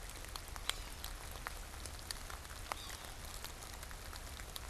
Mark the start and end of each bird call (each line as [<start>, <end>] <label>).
[0.57, 1.27] Yellow-bellied Sapsucker (Sphyrapicus varius)
[2.57, 3.37] Yellow-bellied Sapsucker (Sphyrapicus varius)